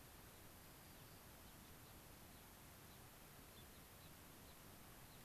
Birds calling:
White-crowned Sparrow (Zonotrichia leucophrys), Gray-crowned Rosy-Finch (Leucosticte tephrocotis)

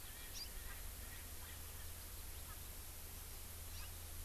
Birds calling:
Hawaii Amakihi (Chlorodrepanis virens), Erckel's Francolin (Pternistis erckelii)

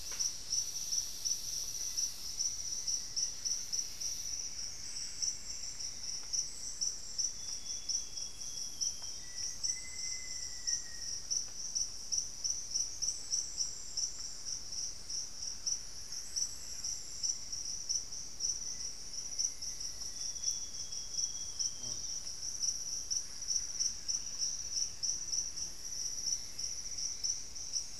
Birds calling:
Thrush-like Wren (Campylorhynchus turdinus), Buff-breasted Wren (Cantorchilus leucotis), Amazonian Grosbeak (Cyanoloxia rothschildii), Cinnamon-throated Woodcreeper (Dendrexetastes rufigula), Black-faced Antthrush (Formicarius analis), Cinnamon-rumped Foliage-gleaner (Philydor pyrrhodes)

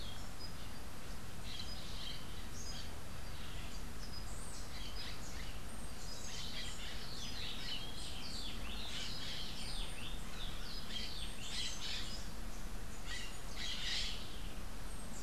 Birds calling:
Crimson-fronted Parakeet (Psittacara finschi)

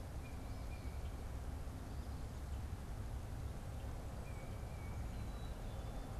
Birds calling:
unidentified bird, Tufted Titmouse (Baeolophus bicolor), Black-capped Chickadee (Poecile atricapillus)

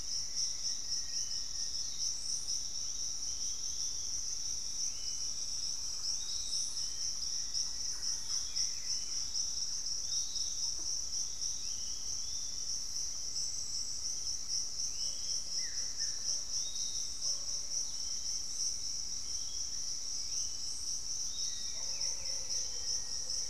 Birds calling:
Thrush-like Wren (Campylorhynchus turdinus), Bluish-fronted Jacamar (Galbula cyanescens), unidentified bird, Piratic Flycatcher (Legatus leucophaius), Black-faced Antthrush (Formicarius analis), Buff-throated Woodcreeper (Xiphorhynchus guttatus)

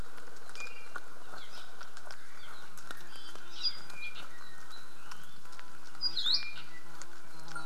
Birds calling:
Iiwi (Drepanis coccinea), Apapane (Himatione sanguinea), Hawaii Akepa (Loxops coccineus)

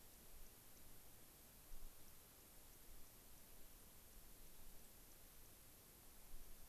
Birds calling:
unidentified bird, White-crowned Sparrow (Zonotrichia leucophrys)

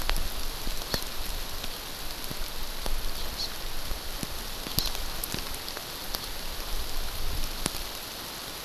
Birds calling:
Hawaii Amakihi (Chlorodrepanis virens)

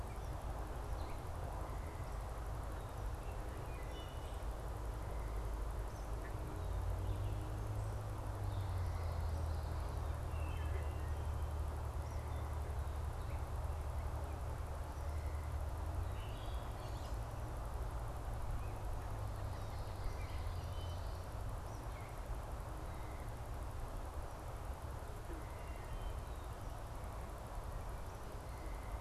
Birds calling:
Common Yellowthroat (Geothlypis trichas), Wood Thrush (Hylocichla mustelina)

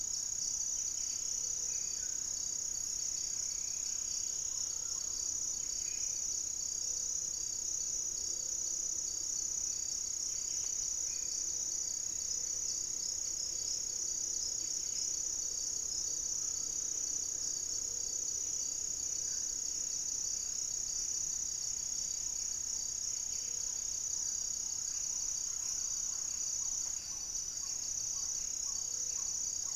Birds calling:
Buff-breasted Wren (Cantorchilus leucotis), Striped Woodcreeper (Xiphorhynchus obsoletus), Black-faced Antthrush (Formicarius analis), Gray-fronted Dove (Leptotila rufaxilla), Black-tailed Trogon (Trogon melanurus), Screaming Piha (Lipaugus vociferans)

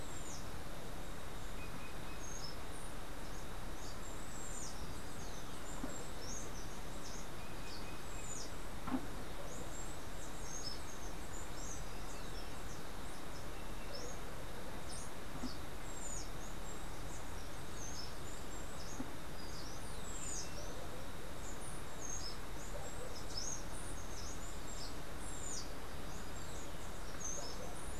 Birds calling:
Steely-vented Hummingbird (Saucerottia saucerottei), Green Jay (Cyanocorax yncas)

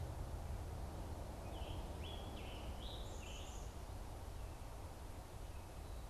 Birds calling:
Scarlet Tanager (Piranga olivacea)

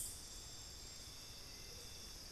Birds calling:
Amazonian Motmot (Momotus momota)

